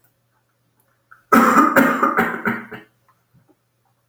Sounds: Cough